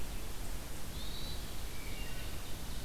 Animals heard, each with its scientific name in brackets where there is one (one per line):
Wood Thrush (Hylocichla mustelina)
Hermit Thrush (Catharus guttatus)
Ovenbird (Seiurus aurocapilla)